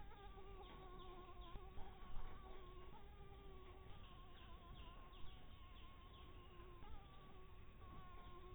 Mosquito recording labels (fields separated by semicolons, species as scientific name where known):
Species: Anopheles dirus; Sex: female; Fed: unfed; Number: one; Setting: cup